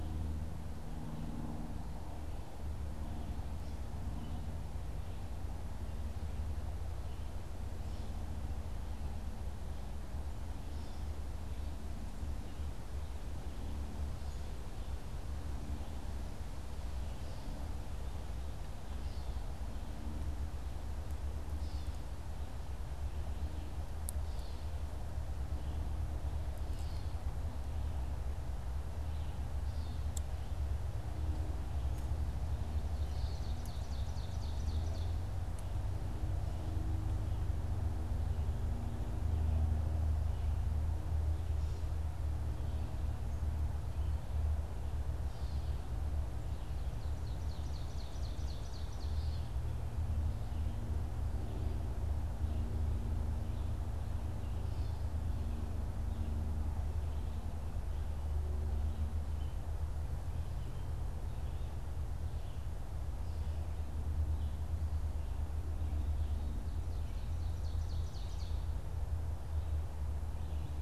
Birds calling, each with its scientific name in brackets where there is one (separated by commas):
Gray Catbird (Dumetella carolinensis), Ovenbird (Seiurus aurocapilla)